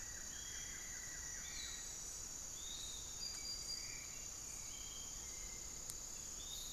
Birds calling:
unidentified bird
Piratic Flycatcher (Legatus leucophaius)
Buff-throated Woodcreeper (Xiphorhynchus guttatus)
Black-faced Antthrush (Formicarius analis)
Hauxwell's Thrush (Turdus hauxwelli)
Long-winged Antwren (Myrmotherula longipennis)

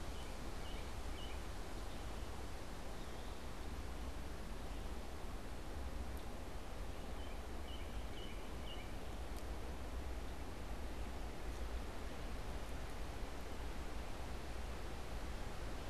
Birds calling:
American Robin (Turdus migratorius)

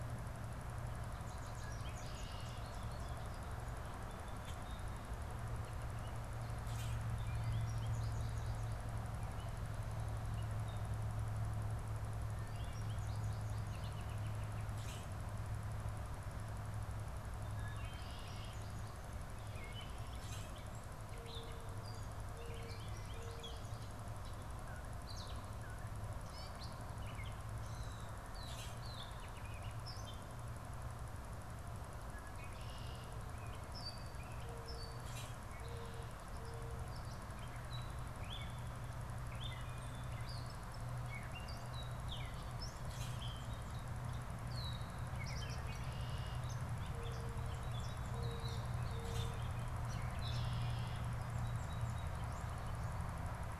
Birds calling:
Wood Thrush (Hylocichla mustelina)
Common Grackle (Quiscalus quiscula)
American Robin (Turdus migratorius)
American Goldfinch (Spinus tristis)
Gray Catbird (Dumetella carolinensis)
Red-winged Blackbird (Agelaius phoeniceus)

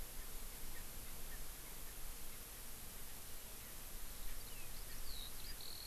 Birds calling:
Eurasian Skylark (Alauda arvensis)

